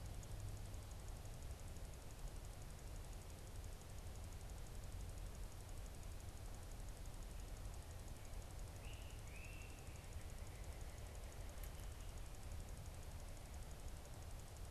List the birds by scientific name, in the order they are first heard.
Myiarchus crinitus, Sitta carolinensis